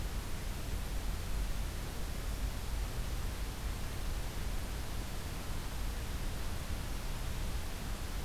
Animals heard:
forest ambience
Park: Acadia National Park